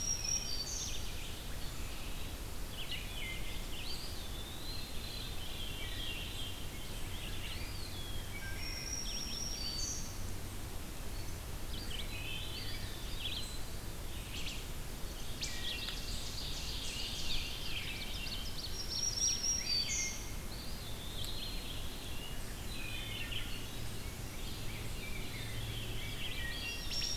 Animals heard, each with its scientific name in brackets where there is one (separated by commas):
Black-throated Green Warbler (Setophaga virens), Wood Thrush (Hylocichla mustelina), Eastern Wood-Pewee (Contopus virens), Ovenbird (Seiurus aurocapilla), Veery (Catharus fuscescens), Red-eyed Vireo (Vireo olivaceus)